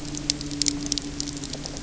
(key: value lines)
label: anthrophony, boat engine
recorder: SoundTrap 300